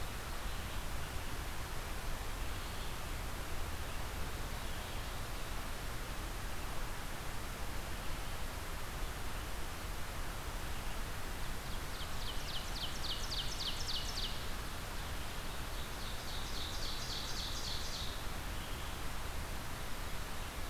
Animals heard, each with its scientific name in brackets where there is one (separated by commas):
Ovenbird (Seiurus aurocapilla), Red-eyed Vireo (Vireo olivaceus)